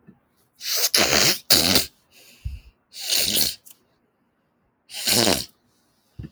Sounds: Sniff